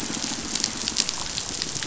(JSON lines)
{"label": "biophony, pulse", "recorder": "SoundTrap 500"}